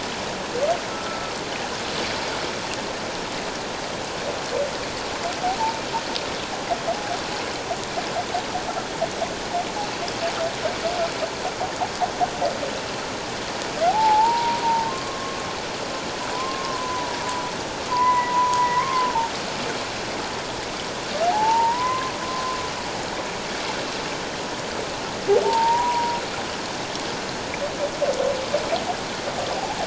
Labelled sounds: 0.9	1.3	humpback whale, 1.3 to 1.4 kHz
13.9	15.4	humpback whale, 0.78 to 1.1 kHz
16.3	17.2	humpback whale, 0.94 to 1.1 kHz
17.9	19.1	humpback whale, 0.91 to 2.3 kHz
21.3	22.1	humpback whale, 0.78 to 1.1 kHz
25.4	26.2	humpback whale, 0.84 to 1.0 kHz

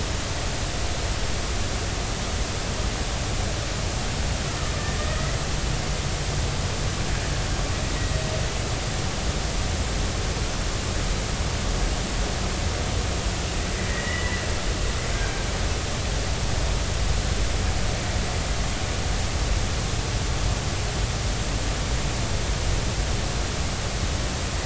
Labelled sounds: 5.0	5.3	killer whale, Bigg's (transient), 1.2 to 1.3 kHz
13.9	14.4	killer whale, Bigg's (transient), 1.8 to 2.0 kHz

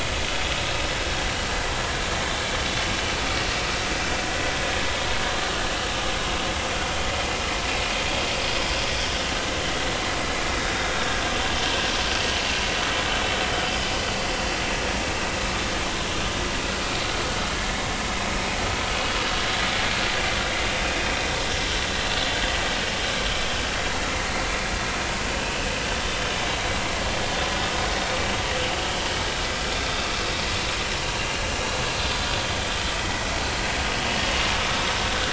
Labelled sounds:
17.5	17.8	vessel noise, 1.6 to 1.8 kHz
20.8	21.1	vessel noise, 2.4 to 2.6 kHz
31.2	31.4	vessel noise, 2.7 to 2.9 kHz
32.1	32.4	vessel noise, 3.5 to 3.7 kHz
33.0	33.3	vessel noise, 1.9 to 2.1 kHz

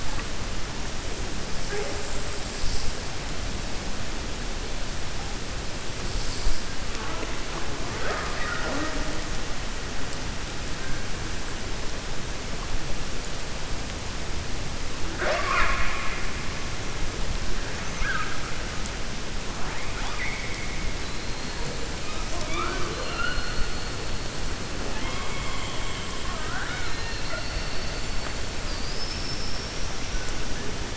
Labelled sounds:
19.9	20.8	killer whale, 0.79 to 3.5 kHz

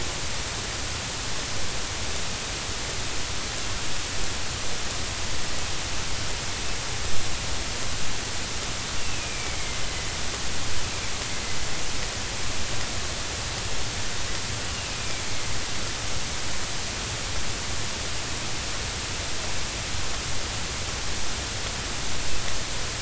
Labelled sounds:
9.0	9.8	killer whale, northern resident, A clan, AA subclan, 2.0 to 2.8 kHz
14.7	15.2	killer whale, northern resident, A clan, AA subclan, 2.2 to 3.0 kHz

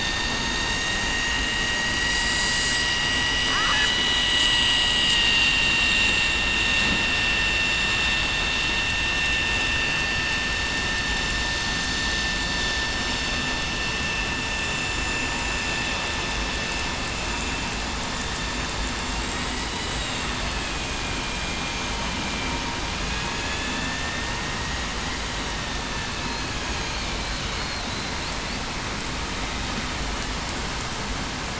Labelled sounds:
0.1	1.0	vessel noise, 1.9 to 4.7 kHz
1.4	1.8	vessel noise, 2.8 to 2.9 kHz
3.3	4.1	vessel noise, 2.9 to 3.0 kHz
4.4	5.9	vessel noise, 1.8 to 7.8 kHz
21.0	21.7	vessel noise, 2.37 to 2.44 kHz
22.2	22.6	vessel noise, 2.3 to 2.4 kHz
23.3	23.9	vessel noise, 2.5 to 2.7 kHz
24.5	24.9	vessel noise, 1.85 to 1.92 kHz

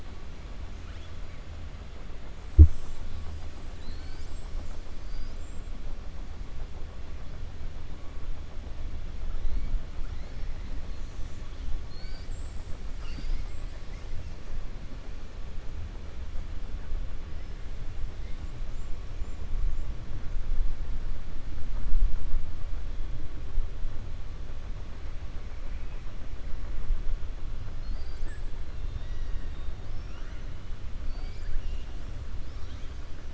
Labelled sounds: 11.8	12.3	killer whale, 1.5 to 5.8 kHz
25.6	26.0	killer whale, 2.0 to 2.6 kHz
28.7	30.4	killer whale, 1.9 to 6.5 kHz

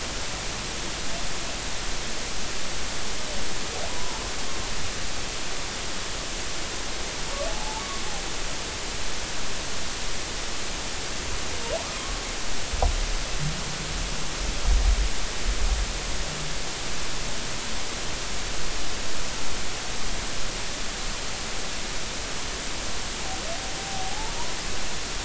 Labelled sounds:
3.9	4.2	humpback whale, 0.83 to 1.1 kHz
7.5	7.8	humpback whale, 0.80 to 0.96 kHz
24.1	24.3	humpback whale, 0.80 to 0.96 kHz

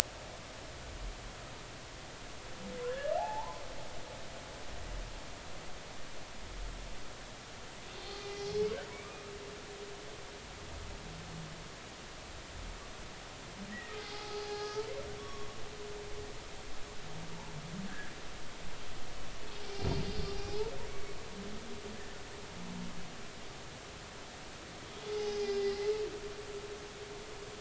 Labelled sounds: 2.9	3.6	humpback whale, 0.80 to 1.8 kHz
8.0	8.7	humpback whale, 3.2 to 4.5 kHz
13.7	14.8	humpback whale, 0.80 to 2.0 kHz
15.2	15.5	humpback whale, 1.1 to 5.6 kHz
17.9	18.1	humpback whale, 1.5 to 1.8 kHz
19.6	20.7	humpback whale, 0.80 to 5.8 kHz
25.2	25.8	humpback whale, 0.80 to 5.4 kHz

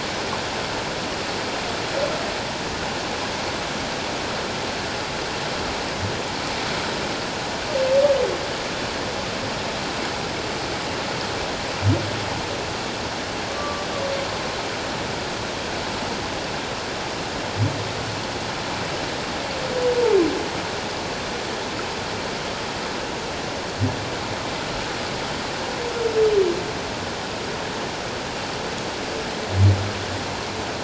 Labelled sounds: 13.6	13.9	humpback whale, 1.1 to 1.2 kHz

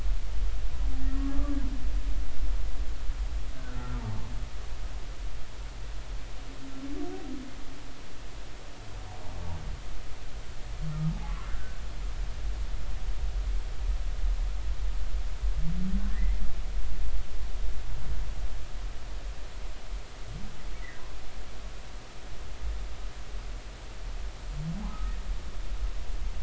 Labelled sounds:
1.0	1.3	humpback whale, 1.8 to 1.9 kHz
3.6	4.2	humpback whale, 0.80 to 1.6 kHz
11.5	11.8	humpback whale, 1.5 to 1.7 kHz
16.1	16.4	humpback whale, 1.7 to 2.1 kHz
24.9	25.1	humpback whale, 1.2 to 1.3 kHz

